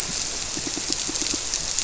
{"label": "biophony, squirrelfish (Holocentrus)", "recorder": "SoundTrap 300"}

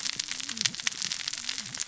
{"label": "biophony, cascading saw", "recorder": "SoundTrap 600 or HydroMoth"}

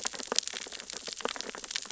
{"label": "biophony, sea urchins (Echinidae)", "recorder": "SoundTrap 600 or HydroMoth"}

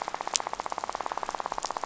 {"label": "biophony, rattle", "recorder": "SoundTrap 500"}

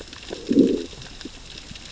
{"label": "biophony, growl", "recorder": "SoundTrap 600 or HydroMoth"}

